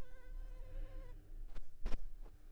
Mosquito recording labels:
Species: Culex pipiens complex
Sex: female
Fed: unfed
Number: one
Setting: cup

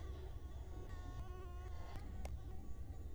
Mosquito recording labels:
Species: Culex quinquefasciatus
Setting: cup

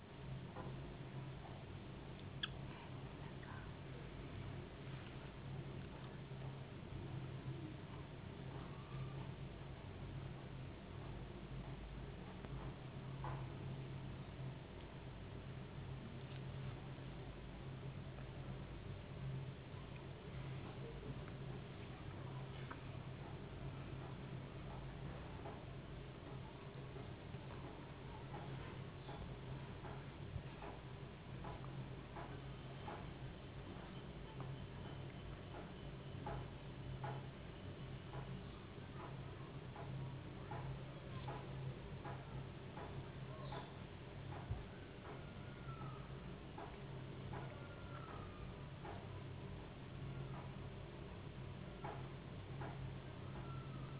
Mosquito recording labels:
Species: no mosquito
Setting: insect culture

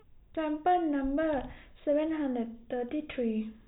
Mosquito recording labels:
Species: no mosquito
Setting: cup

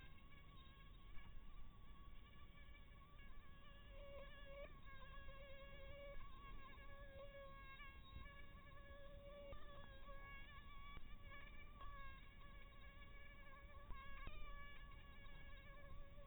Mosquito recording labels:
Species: Anopheles maculatus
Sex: female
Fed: blood-fed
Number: one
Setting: cup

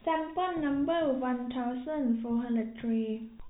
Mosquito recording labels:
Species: no mosquito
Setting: cup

